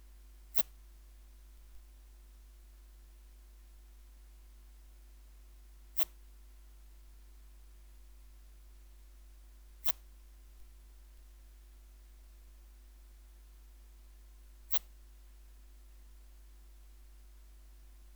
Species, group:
Phaneroptera falcata
Orthoptera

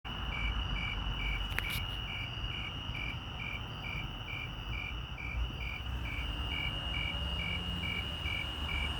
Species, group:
Oecanthus fultoni
Orthoptera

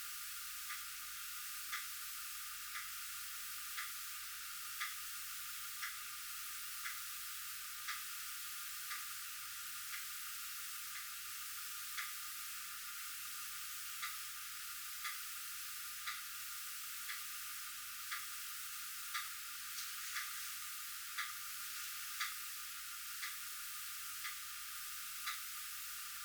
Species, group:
Rhacocleis lithoscirtetes
Orthoptera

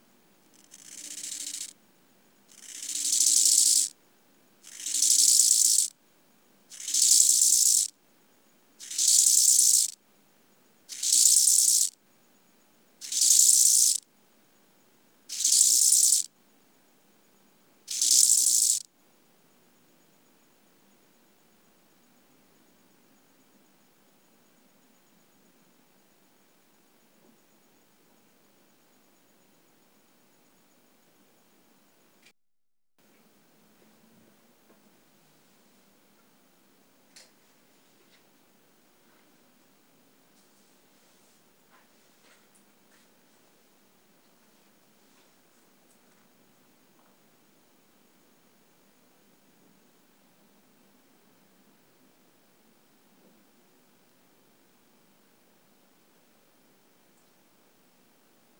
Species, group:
Chorthippus eisentrauti
Orthoptera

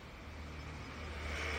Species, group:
Ornebius kanetataki
Orthoptera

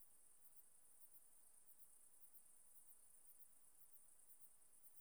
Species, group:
Platycleis intermedia
Orthoptera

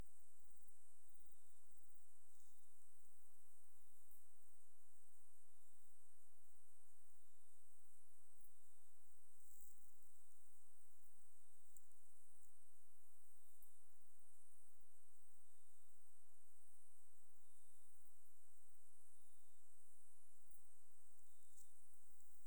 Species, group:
Oecanthus pellucens
Orthoptera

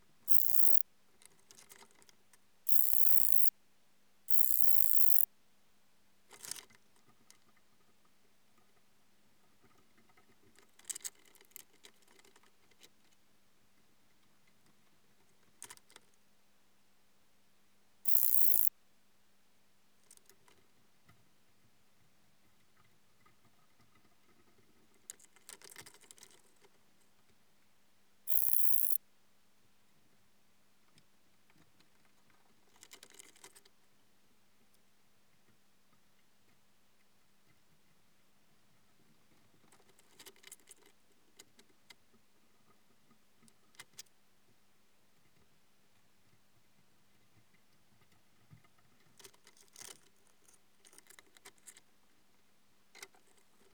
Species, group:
Metrioptera prenjica
Orthoptera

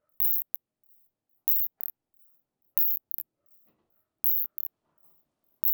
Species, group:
Isophya tosevski
Orthoptera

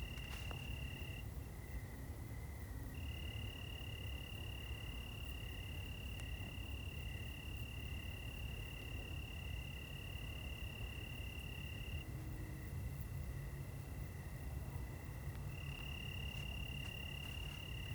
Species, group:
Oecanthus californicus
Orthoptera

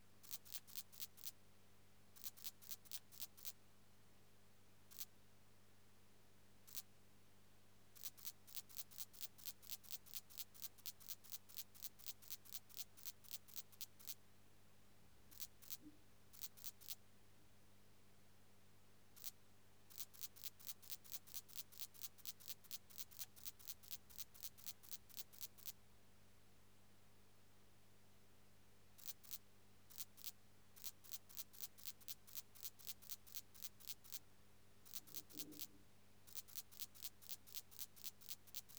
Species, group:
Tessellana lagrecai
Orthoptera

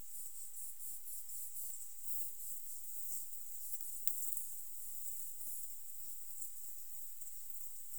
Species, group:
Platycleis sabulosa
Orthoptera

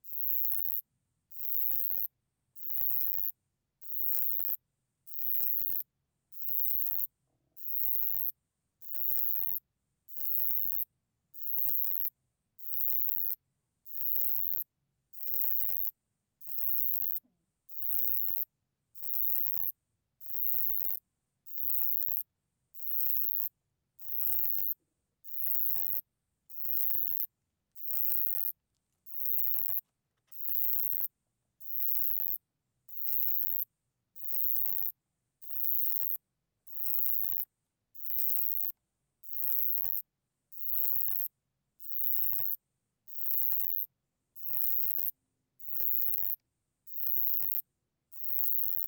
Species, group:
Uromenus elegans
Orthoptera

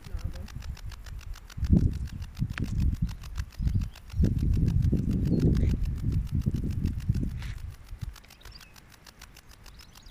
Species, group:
Metrioptera brachyptera
Orthoptera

